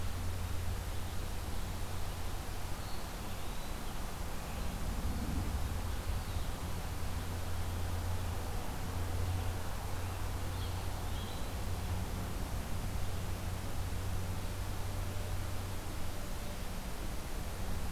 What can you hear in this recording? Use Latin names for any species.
Contopus virens